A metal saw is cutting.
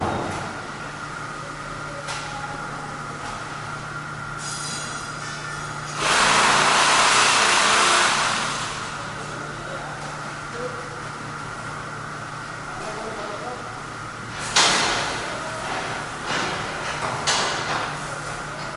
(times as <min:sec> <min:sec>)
0:05.6 0:09.2